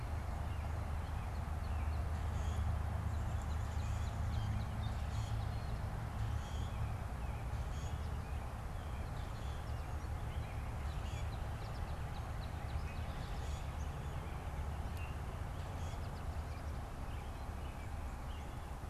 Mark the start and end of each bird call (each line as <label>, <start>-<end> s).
Northern Cardinal (Cardinalis cardinalis), 0.9-5.9 s
Downy Woodpecker (Dryobates pubescens), 3.0-4.6 s
Common Grackle (Quiscalus quiscula), 6.1-10.1 s
Northern Cardinal (Cardinalis cardinalis), 10.5-14.0 s
Common Grackle (Quiscalus quiscula), 14.7-16.2 s
American Robin (Turdus migratorius), 16.4-18.6 s